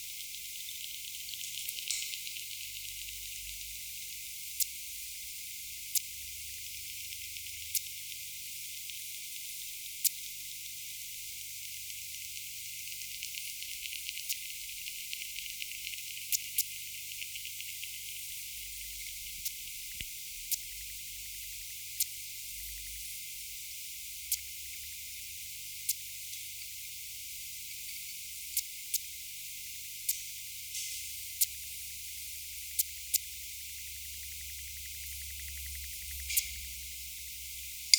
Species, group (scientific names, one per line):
Yersinella raymondii
Orthoptera